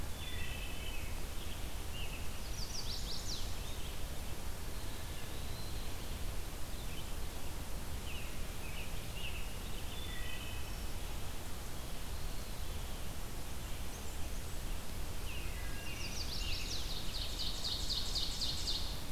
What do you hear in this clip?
Wood Thrush, American Robin, Chestnut-sided Warbler, Red-eyed Vireo, Eastern Wood-Pewee, Blackburnian Warbler, Ovenbird